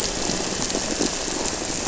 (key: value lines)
label: anthrophony, boat engine
recorder: SoundTrap 300

label: biophony
recorder: SoundTrap 300